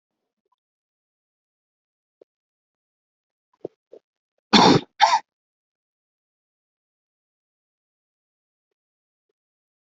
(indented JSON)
{
  "expert_labels": [
    {
      "quality": "good",
      "cough_type": "dry",
      "dyspnea": false,
      "wheezing": false,
      "stridor": false,
      "choking": false,
      "congestion": false,
      "nothing": true,
      "diagnosis": "COVID-19",
      "severity": "mild"
    }
  ],
  "age": 45,
  "gender": "male",
  "respiratory_condition": false,
  "fever_muscle_pain": false,
  "status": "healthy"
}